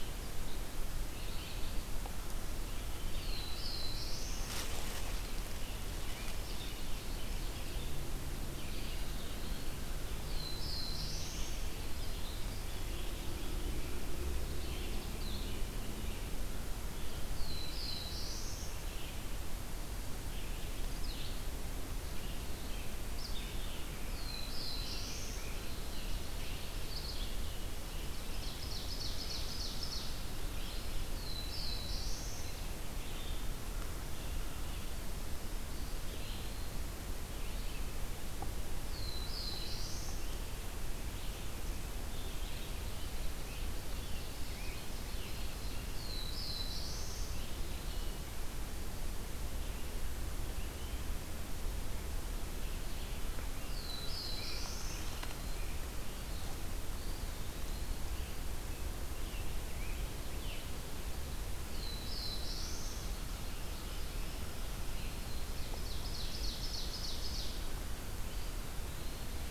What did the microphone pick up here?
Black-throated Blue Warbler, Ovenbird, Eastern Wood-Pewee, Black-capped Chickadee, Scarlet Tanager